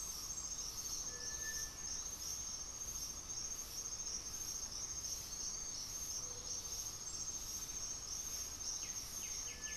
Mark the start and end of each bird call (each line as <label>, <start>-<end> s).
Great Antshrike (Taraba major), 0.0-2.1 s
Gray-fronted Dove (Leptotila rufaxilla), 0.0-9.8 s
Cinereous Tinamou (Crypturellus cinereus), 0.9-1.8 s
White-winged Becard (Pachyramphus polychopterus), 8.5-9.8 s